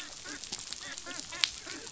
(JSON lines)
{"label": "biophony, dolphin", "recorder": "SoundTrap 500"}